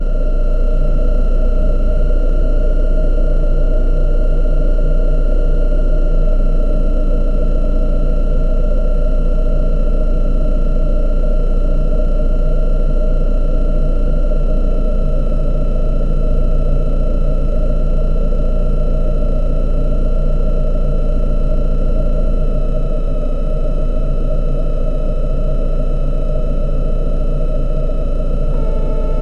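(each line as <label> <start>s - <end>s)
Deep, low rumble. 0.0s - 29.2s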